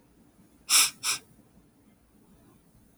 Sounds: Sniff